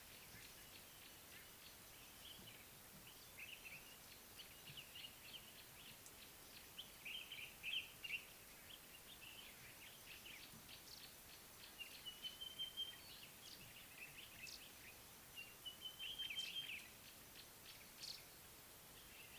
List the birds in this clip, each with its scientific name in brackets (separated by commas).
Sulphur-breasted Bushshrike (Telophorus sulfureopectus), Common Bulbul (Pycnonotus barbatus)